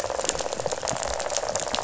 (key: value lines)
label: biophony, rattle
recorder: SoundTrap 500